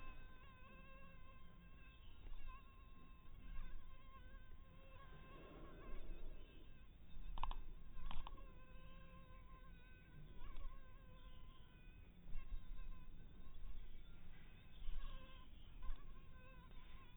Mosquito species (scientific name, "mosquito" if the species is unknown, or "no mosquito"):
mosquito